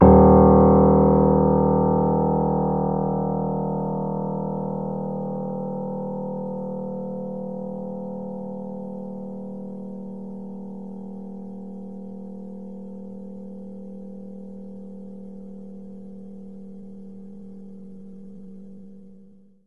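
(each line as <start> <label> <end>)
0.0 A single piano key with a deep tone is pressed once, producing a sound that gradually decreases in volume. 19.7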